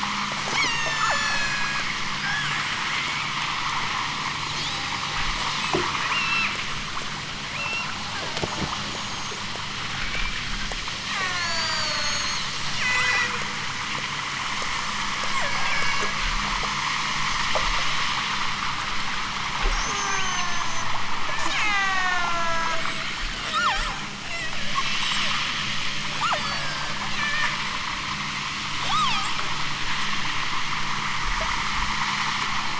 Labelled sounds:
0.5	1.8	killer whale, southern Alaska resident, 0.37 to 8.0 kHz
2.1	2.8	killer whale, southern Alaska resident, 1.0 to 8.0 kHz
4.5	5.0	killer whale, southern Alaska resident, 2.8 to 8.0 kHz
6.1	6.6	killer whale, southern Alaska resident, 2.1 to 5.9 kHz
7.5	8.9	killer whale, southern Alaska resident, 0.50 to 6.3 kHz
11.0	13.4	killer whale, southern Alaska resident, 0.55 to 8.0 kHz
15.3	16.3	killer whale, southern Alaska resident, 0.55 to 7.2 kHz
19.6	20.9	killer whale, southern Alaska resident, 0.46 to 8.0 kHz
21.3	22.8	killer whale, southern Alaska resident, 0.32 to 8.0 kHz
23.5	24.9	killer whale, southern Alaska resident, 0.50 to 8.0 kHz
26.1	27.6	killer whale, southern Alaska resident, 0.55 to 8.0 kHz
28.8	29.4	killer whale, southern Alaska resident, 0.50 to 8.0 kHz

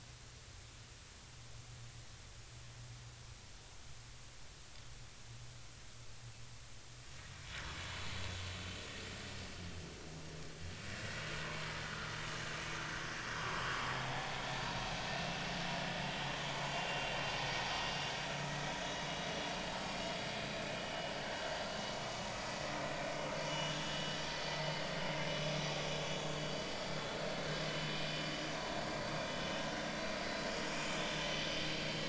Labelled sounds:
11.4	11.7	vessel noise, 0.96 to 1.1 kHz
13.4	13.6	vessel noise, 0.96 to 1.2 kHz
14.0	14.4	vessel noise, 0.80 to 0.90 kHz
16.7	17.1	vessel noise, 2.7 to 2.8 kHz
18.7	19.2	vessel noise, 3.7 to 5.9 kHz
20.7	21.5	vessel noise, 1.5 to 3.0 kHz
22.0	22.3	vessel noise, 1.1 to 1.3 kHz
23.5	24.0	vessel noise, 1.5 to 3.6 kHz
24.3	24.5	vessel noise, 4.3 to 4.6 kHz
26.1	26.7	vessel noise, 4.5 to 4.8 kHz
28.6	28.8	vessel noise, 4.4 to 4.5 kHz

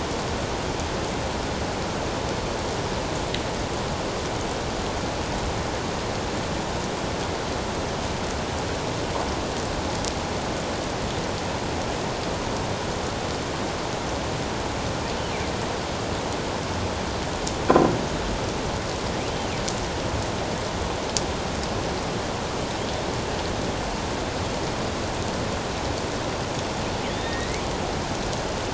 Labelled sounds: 19.2	19.5	killer whale, northern resident, A clan, AA subclan, A04 pod, 2.7 to 3.2 kHz
27.1	27.6	killer whale, northern resident, A clan, AA subclan, A04 pod, 1.8 to 4.0 kHz

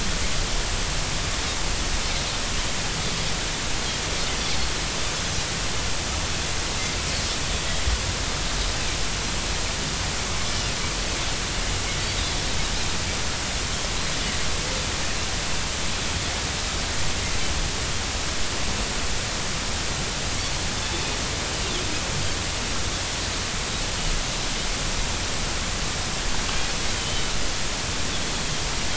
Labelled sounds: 27.0	27.3	Pacific white-sided dolphin, 2.9 to 3.1 kHz

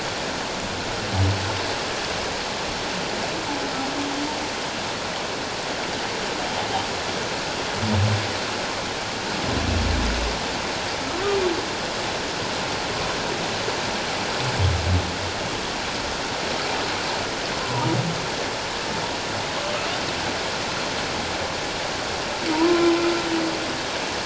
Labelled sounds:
17.6	17.9	humpback whale, 0.88 to 1.1 kHz
22.5	23.0	humpback whale, 0.88 to 1.1 kHz

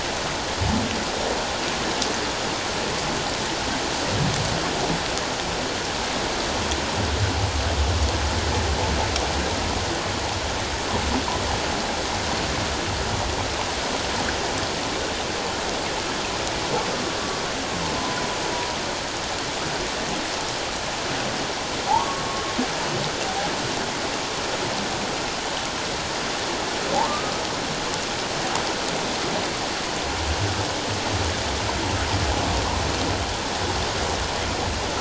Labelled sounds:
21.9	22.3	humpback whale, 0.78 to 1.2 kHz
26.9	27.3	humpback whale, 0.78 to 1.3 kHz

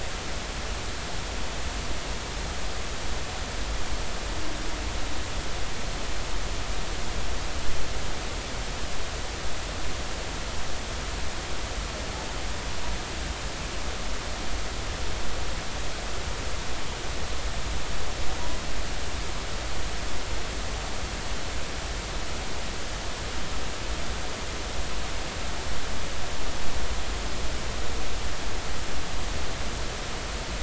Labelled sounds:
18.4	18.6	humpback whale, 0.93 to 1.1 kHz

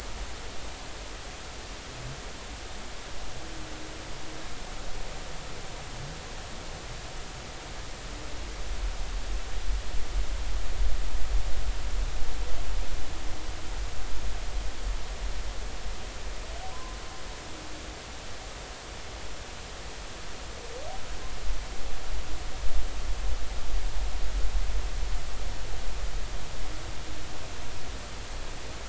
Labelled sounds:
16.7	17.0	humpback whale, 0.96 to 1.1 kHz

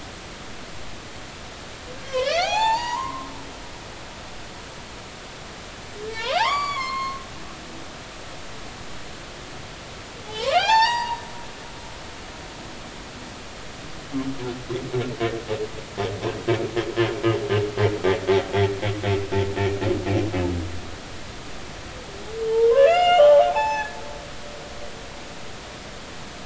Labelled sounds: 1.9	3.3	humpback whale, 0.80 to 7.3 kHz
6.0	7.2	humpback whale, 0.80 to 7.0 kHz
10.2	11.2	humpback whale, 0.80 to 5.8 kHz
22.5	24.0	humpback whale, 0.80 to 7.3 kHz
24.5	24.9	humpback whale, 0.80 to 1.1 kHz

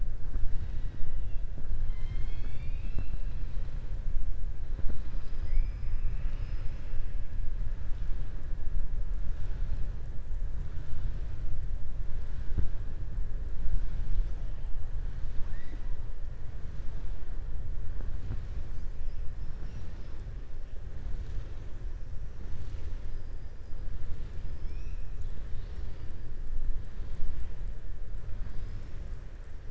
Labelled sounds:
15.1	15.9	killer whale, southern resident, 0.92 to 5.9 kHz
24.4	25.1	killer whale, southern resident, 2.3 to 6.3 kHz

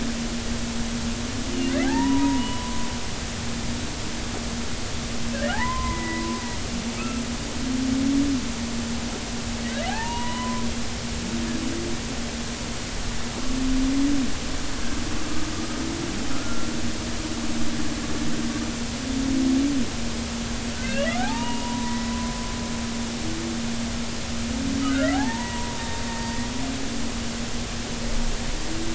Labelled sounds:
1.8	2.8	humpback whale, 0.80 to 3.0 kHz
5.5	6.4	humpback whale, 0.80 to 2.1 kHz
7.0	7.2	humpback whale, 1.2 to 1.4 kHz
9.9	10.6	humpback whale, 0.80 to 3.0 kHz
16.3	16.7	humpback whale, 1.2 to 1.5 kHz
20.8	22.4	humpback whale, 0.80 to 2.9 kHz
24.9	26.5	humpback whale, 0.80 to 3.8 kHz

